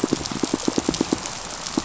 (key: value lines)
label: biophony, pulse
recorder: SoundTrap 500